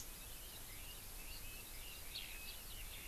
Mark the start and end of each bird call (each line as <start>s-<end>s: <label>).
0.0s-3.1s: Eurasian Skylark (Alauda arvensis)
1.4s-3.1s: Red-billed Leiothrix (Leiothrix lutea)